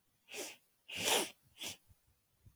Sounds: Sniff